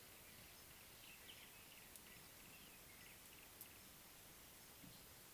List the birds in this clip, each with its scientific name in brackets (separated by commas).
Yellow-breasted Apalis (Apalis flavida)